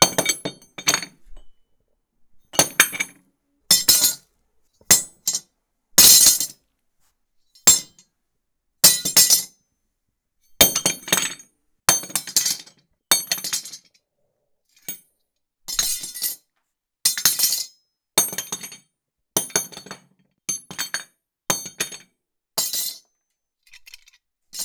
Is someone tossing something?
yes